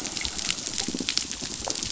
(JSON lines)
{"label": "biophony, pulse", "recorder": "SoundTrap 500"}